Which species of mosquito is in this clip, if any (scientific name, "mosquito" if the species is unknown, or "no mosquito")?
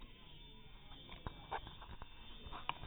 mosquito